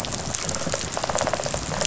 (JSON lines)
{"label": "biophony, rattle response", "recorder": "SoundTrap 500"}